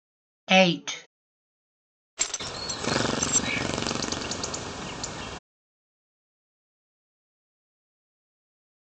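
At 0.49 seconds, someone says "eight". Then at 2.17 seconds, you can hear gears. Meanwhile, at 2.39 seconds, chirping can be heard.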